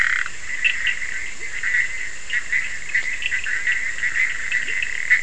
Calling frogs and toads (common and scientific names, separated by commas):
Bischoff's tree frog (Boana bischoffi), Leptodactylus latrans